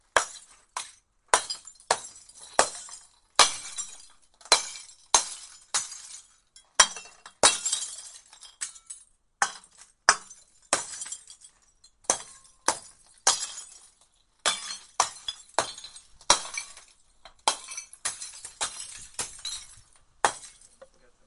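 0.0s Glass shatters rhythmically. 21.3s

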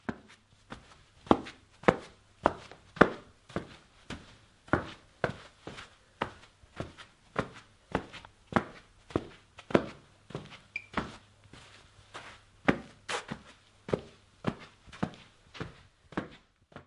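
0.0s Footsteps on a carpet sound sharp and steady. 16.9s

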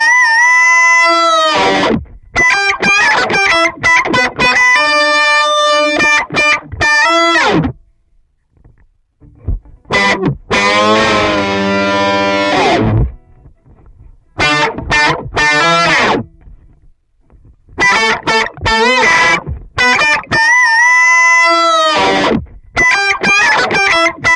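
0.2s An electric guitar solo plays with heavy distortion and wah effects, improvising in a dynamic and expressive way with a gritty, sharp, and punchy sound evoking a rock or metal vibe. 24.4s

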